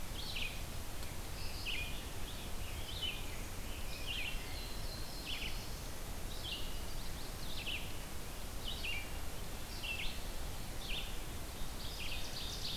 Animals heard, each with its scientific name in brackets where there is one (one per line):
Red-eyed Vireo (Vireo olivaceus)
Chestnut-sided Warbler (Setophaga pensylvanica)
Ovenbird (Seiurus aurocapilla)
Black-throated Blue Warbler (Setophaga caerulescens)
Rose-breasted Grosbeak (Pheucticus ludovicianus)